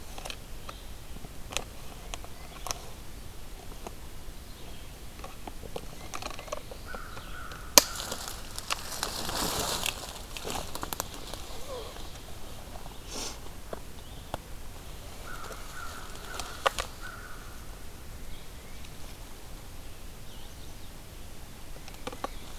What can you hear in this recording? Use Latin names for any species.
Baeolophus bicolor, Corvus brachyrhynchos, Setophaga pensylvanica